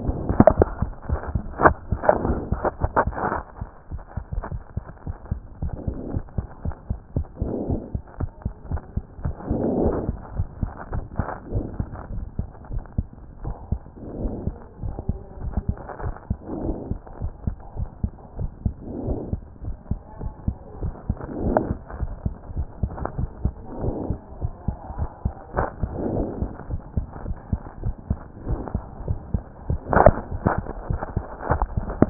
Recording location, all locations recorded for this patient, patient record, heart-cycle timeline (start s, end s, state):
mitral valve (MV)
aortic valve (AV)+pulmonary valve (PV)+tricuspid valve (TV)+mitral valve (MV)
#Age: Child
#Sex: Male
#Height: 102.0 cm
#Weight: 17.5 kg
#Pregnancy status: False
#Murmur: Absent
#Murmur locations: nan
#Most audible location: nan
#Systolic murmur timing: nan
#Systolic murmur shape: nan
#Systolic murmur grading: nan
#Systolic murmur pitch: nan
#Systolic murmur quality: nan
#Diastolic murmur timing: nan
#Diastolic murmur shape: nan
#Diastolic murmur grading: nan
#Diastolic murmur pitch: nan
#Diastolic murmur quality: nan
#Outcome: Normal
#Campaign: 2014 screening campaign
0.00	5.96	unannotated
5.96	6.12	diastole
6.12	6.24	S1
6.24	6.36	systole
6.36	6.46	S2
6.46	6.64	diastole
6.64	6.74	S1
6.74	6.88	systole
6.88	6.98	S2
6.98	7.16	diastole
7.16	7.26	S1
7.26	7.40	systole
7.40	7.52	S2
7.52	7.68	diastole
7.68	7.80	S1
7.80	7.94	systole
7.94	8.02	S2
8.02	8.20	diastole
8.20	8.30	S1
8.30	8.44	systole
8.44	8.52	S2
8.52	8.70	diastole
8.70	8.82	S1
8.82	8.96	systole
8.96	9.04	S2
9.04	9.24	diastole
9.24	9.34	S1
9.34	9.48	systole
9.48	9.62	S2
9.62	9.80	diastole
9.80	9.94	S1
9.94	10.06	systole
10.06	10.16	S2
10.16	10.36	diastole
10.36	10.48	S1
10.48	10.60	systole
10.60	10.70	S2
10.70	10.92	diastole
10.92	11.04	S1
11.04	11.18	systole
11.18	11.26	S2
11.26	11.52	diastole
11.52	11.66	S1
11.66	11.78	systole
11.78	11.88	S2
11.88	12.14	diastole
12.14	12.26	S1
12.26	12.38	systole
12.38	12.48	S2
12.48	12.72	diastole
12.72	12.82	S1
12.82	12.96	systole
12.96	13.06	S2
13.06	13.44	diastole
13.44	13.56	S1
13.56	13.70	systole
13.70	13.80	S2
13.80	14.20	diastole
14.20	14.32	S1
14.32	14.46	systole
14.46	14.54	S2
14.54	14.84	diastole
14.84	14.96	S1
14.96	15.08	systole
15.08	15.18	S2
15.18	15.42	diastole
15.42	15.54	S1
15.54	15.68	systole
15.68	15.76	S2
15.76	16.02	diastole
16.02	16.14	S1
16.14	16.28	systole
16.28	16.38	S2
16.38	16.62	diastole
16.62	16.76	S1
16.76	16.90	systole
16.90	16.98	S2
16.98	17.20	diastole
17.20	17.32	S1
17.32	17.46	systole
17.46	17.56	S2
17.56	17.78	diastole
17.78	17.88	S1
17.88	18.02	systole
18.02	18.12	S2
18.12	18.38	diastole
18.38	18.50	S1
18.50	18.64	systole
18.64	18.74	S2
18.74	19.06	diastole
19.06	19.18	S1
19.18	19.32	systole
19.32	19.40	S2
19.40	19.64	diastole
19.64	19.76	S1
19.76	19.90	systole
19.90	20.00	S2
20.00	20.22	diastole
20.22	20.32	S1
20.32	20.46	systole
20.46	20.56	S2
20.56	20.82	diastole
20.82	20.94	S1
20.94	21.08	systole
21.08	21.18	S2
21.18	21.42	diastole
21.42	21.58	S1
21.58	21.68	systole
21.68	21.78	S2
21.78	22.00	diastole
22.00	22.12	S1
22.12	22.24	systole
22.24	22.34	S2
22.34	22.56	diastole
22.56	22.66	S1
22.66	22.82	systole
22.82	22.90	S2
22.90	23.18	diastole
23.18	23.30	S1
23.30	23.44	systole
23.44	23.54	S2
23.54	23.82	diastole
23.82	23.96	S1
23.96	24.08	systole
24.08	24.18	S2
24.18	24.42	diastole
24.42	24.52	S1
24.52	24.66	systole
24.66	24.76	S2
24.76	24.98	diastole
24.98	25.10	S1
25.10	25.24	systole
25.24	25.34	S2
25.34	25.56	diastole
25.56	25.68	S1
25.68	25.82	systole
25.82	25.90	S2
25.90	26.12	diastole
26.12	26.28	S1
26.28	26.40	systole
26.40	26.50	S2
26.50	26.70	diastole
26.70	26.82	S1
26.82	26.96	systole
26.96	27.06	S2
27.06	27.26	diastole
27.26	27.38	S1
27.38	27.52	systole
27.52	27.60	S2
27.60	27.82	diastole
27.82	27.94	S1
27.94	28.08	systole
28.08	28.18	S2
28.18	28.48	diastole
28.48	28.60	S1
28.60	28.74	systole
28.74	28.82	S2
28.82	29.08	diastole
29.08	29.18	S1
29.18	29.32	systole
29.32	29.42	S2
29.42	29.68	diastole
29.68	29.80	S1
29.80	29.85	systole
29.85	32.10	unannotated